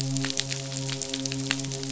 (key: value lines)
label: biophony, midshipman
recorder: SoundTrap 500